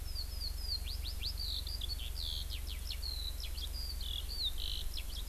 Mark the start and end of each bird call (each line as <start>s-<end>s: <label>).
0.0s-5.3s: Eurasian Skylark (Alauda arvensis)